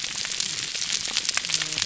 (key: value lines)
label: biophony, whup
recorder: SoundTrap 300